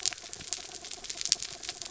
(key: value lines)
label: anthrophony, mechanical
recorder: SoundTrap 300